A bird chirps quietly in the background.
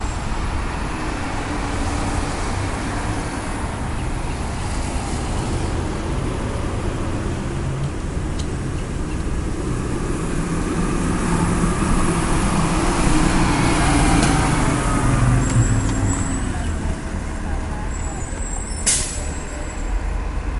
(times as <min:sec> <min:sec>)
0:03.8 0:04.8